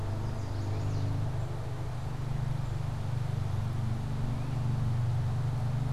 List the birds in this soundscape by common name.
Chestnut-sided Warbler